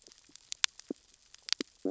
{"label": "biophony, stridulation", "recorder": "SoundTrap 600 or HydroMoth"}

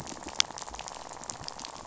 {"label": "biophony, rattle", "recorder": "SoundTrap 500"}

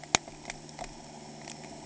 {"label": "anthrophony, boat engine", "recorder": "HydroMoth"}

